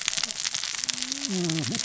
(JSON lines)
{"label": "biophony, cascading saw", "recorder": "SoundTrap 600 or HydroMoth"}